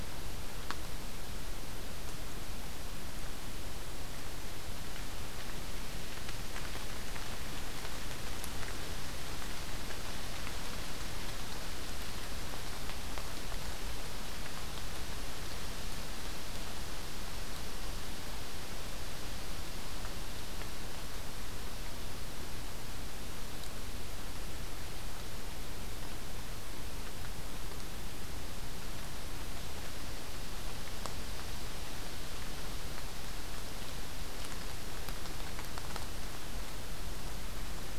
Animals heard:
forest ambience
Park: Acadia National Park